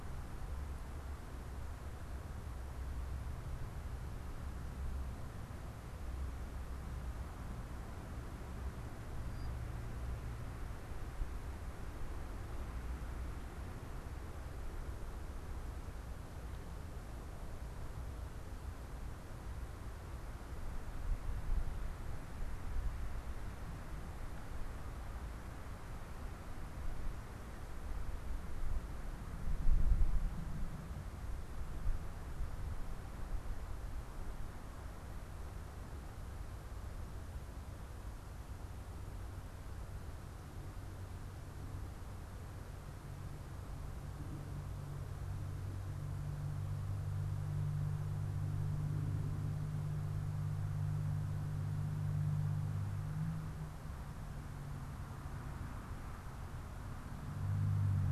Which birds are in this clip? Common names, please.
unidentified bird